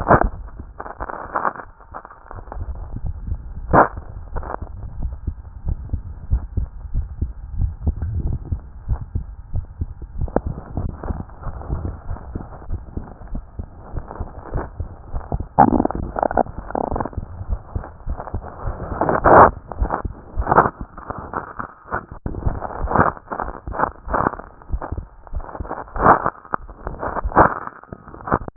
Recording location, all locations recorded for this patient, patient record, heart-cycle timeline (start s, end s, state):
tricuspid valve (TV)
aortic valve (AV)+pulmonary valve (PV)+tricuspid valve (TV)+mitral valve (MV)
#Age: Child
#Sex: Male
#Height: 129.0 cm
#Weight: 24.6 kg
#Pregnancy status: False
#Murmur: Absent
#Murmur locations: nan
#Most audible location: nan
#Systolic murmur timing: nan
#Systolic murmur shape: nan
#Systolic murmur grading: nan
#Systolic murmur pitch: nan
#Systolic murmur quality: nan
#Diastolic murmur timing: nan
#Diastolic murmur shape: nan
#Diastolic murmur grading: nan
#Diastolic murmur pitch: nan
#Diastolic murmur quality: nan
#Outcome: Abnormal
#Campaign: 2014 screening campaign
0.00	4.83	unannotated
4.83	5.00	diastole
5.00	5.14	S1
5.14	5.26	systole
5.26	5.34	S2
5.34	5.66	diastole
5.66	5.78	S1
5.78	5.92	systole
5.92	6.02	S2
6.02	6.30	diastole
6.30	6.44	S1
6.44	6.56	systole
6.56	6.68	S2
6.68	6.94	diastole
6.94	7.06	S1
7.06	7.20	systole
7.20	7.30	S2
7.30	7.58	diastole
7.58	7.74	S1
7.74	7.84	systole
7.84	7.94	S2
7.94	8.22	diastole
8.22	8.36	S1
8.36	8.50	systole
8.50	8.60	S2
8.60	8.88	diastole
8.88	9.00	S1
9.00	9.14	systole
9.14	9.24	S2
9.24	9.54	diastole
9.54	9.66	S1
9.66	9.80	systole
9.80	9.90	S2
9.90	10.18	diastole
10.18	10.30	S1
10.30	10.44	systole
10.44	10.54	S2
10.54	10.78	diastole
10.78	10.92	S1
10.92	11.08	systole
11.08	11.20	S2
11.20	11.45	diastole
11.45	28.56	unannotated